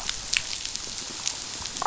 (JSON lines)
{"label": "biophony, damselfish", "recorder": "SoundTrap 500"}